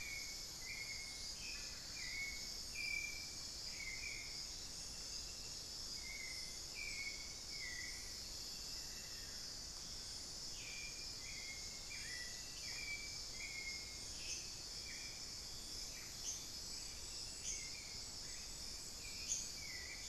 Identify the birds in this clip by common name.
Hauxwell's Thrush, unidentified bird, Amazonian Barred-Woodcreeper